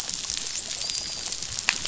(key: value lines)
label: biophony, dolphin
recorder: SoundTrap 500